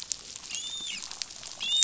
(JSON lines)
{"label": "biophony, dolphin", "recorder": "SoundTrap 500"}